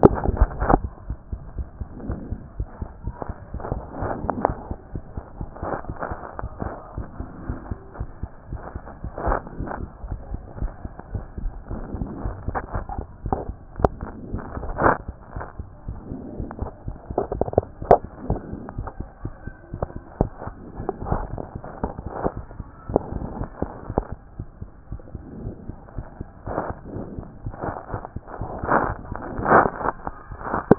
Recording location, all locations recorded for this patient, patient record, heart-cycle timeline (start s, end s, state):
mitral valve (MV)
aortic valve (AV)+pulmonary valve (PV)+tricuspid valve (TV)+mitral valve (MV)
#Age: Child
#Sex: Male
#Height: 111.0 cm
#Weight: 21.3 kg
#Pregnancy status: False
#Murmur: Absent
#Murmur locations: nan
#Most audible location: nan
#Systolic murmur timing: nan
#Systolic murmur shape: nan
#Systolic murmur grading: nan
#Systolic murmur pitch: nan
#Systolic murmur quality: nan
#Diastolic murmur timing: nan
#Diastolic murmur shape: nan
#Diastolic murmur grading: nan
#Diastolic murmur pitch: nan
#Diastolic murmur quality: nan
#Outcome: Normal
#Campaign: 2014 screening campaign
0.00	0.83	unannotated
0.83	0.90	S1
0.90	1.09	systole
1.09	1.16	S2
1.16	1.32	diastole
1.32	1.39	S1
1.39	1.59	systole
1.59	1.66	S2
1.66	1.81	diastole
1.81	1.88	S1
1.88	2.09	systole
2.09	2.16	S2
2.16	2.32	diastole
2.32	2.40	S1
2.40	2.60	systole
2.60	2.66	S2
2.66	2.82	diastole
2.82	2.89	S1
2.89	3.06	systole
3.06	3.13	S2
3.13	3.29	diastole
3.29	30.78	unannotated